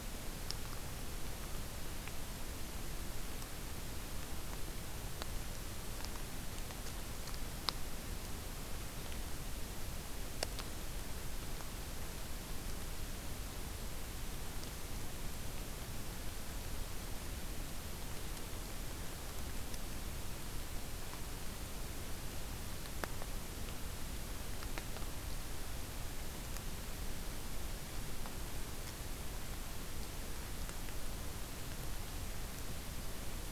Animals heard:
forest ambience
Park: Acadia National Park